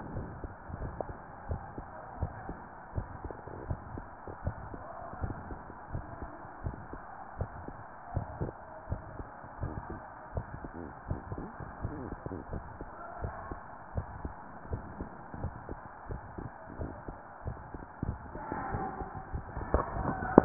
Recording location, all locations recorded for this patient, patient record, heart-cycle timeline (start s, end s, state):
pulmonary valve (PV)
aortic valve (AV)+pulmonary valve (PV)
#Age: Adolescent
#Sex: Female
#Height: 153.0 cm
#Weight: 52.5 kg
#Pregnancy status: False
#Murmur: Present
#Murmur locations: pulmonary valve (PV)
#Most audible location: pulmonary valve (PV)
#Systolic murmur timing: Holosystolic
#Systolic murmur shape: Plateau
#Systolic murmur grading: I/VI
#Systolic murmur pitch: Low
#Systolic murmur quality: Harsh
#Diastolic murmur timing: nan
#Diastolic murmur shape: nan
#Diastolic murmur grading: nan
#Diastolic murmur pitch: nan
#Diastolic murmur quality: nan
#Outcome: Abnormal
#Campaign: 2015 screening campaign
0.00	1.46	unannotated
1.46	1.62	S1
1.62	1.74	systole
1.74	1.86	S2
1.86	2.20	diastole
2.20	2.34	S1
2.34	2.48	systole
2.48	2.58	S2
2.58	2.96	diastole
2.96	3.10	S1
3.10	3.24	systole
3.24	3.34	S2
3.34	3.66	diastole
3.66	3.80	S1
3.80	3.92	systole
3.92	4.06	S2
4.06	4.42	diastole
4.42	4.56	S1
4.56	4.70	systole
4.70	4.82	S2
4.82	5.18	diastole
5.18	5.36	S1
5.36	5.50	systole
5.50	5.60	S2
5.60	5.92	diastole
5.92	6.06	S1
6.06	6.18	systole
6.18	6.30	S2
6.30	6.64	diastole
6.64	6.80	S1
6.80	6.91	systole
6.91	7.00	S2
7.00	7.36	diastole
7.36	7.50	S1
7.50	7.66	systole
7.66	7.76	S2
7.76	8.12	diastole
8.12	8.28	S1
8.28	8.40	systole
8.40	8.52	S2
8.52	8.88	diastole
8.88	9.02	S1
9.02	9.16	systole
9.16	9.26	S2
9.26	9.60	diastole
9.60	9.74	S1
9.74	9.88	systole
9.88	10.02	S2
10.02	10.34	diastole
10.34	10.48	S1
10.48	10.62	systole
10.62	10.72	S2
10.72	11.08	diastole
11.08	11.20	S1
11.20	11.32	systole
11.32	11.48	S2
11.48	11.82	diastole
11.82	12.00	S1
12.00	12.10	systole
12.10	12.20	S2
12.20	12.52	diastole
12.52	12.66	S1
12.66	12.76	systole
12.76	12.88	S2
12.88	13.22	diastole
13.22	13.36	S1
13.36	13.48	systole
13.48	13.58	S2
13.58	13.96	diastole
13.96	14.10	S1
14.10	14.22	systole
14.22	14.36	S2
14.36	14.70	diastole
14.70	14.84	S1
14.84	14.98	systole
14.98	15.12	S2
15.12	15.42	diastole
15.42	15.56	S1
15.56	15.68	systole
15.68	15.78	S2
15.78	16.10	diastole
16.10	16.22	S1
16.22	16.36	systole
16.36	16.46	S2
16.46	16.78	diastole
16.78	16.94	S1
16.94	17.08	systole
17.08	17.16	S2
17.16	17.46	diastole
17.46	17.58	S1
17.58	17.72	systole
17.72	17.82	S2
17.82	20.45	unannotated